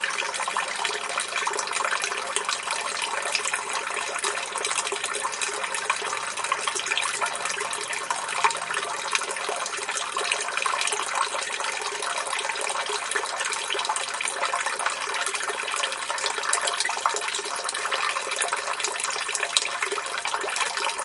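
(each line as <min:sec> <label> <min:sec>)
0:00.1 Water flows continuously, as if from a broken pipe onto a tank below. 0:21.0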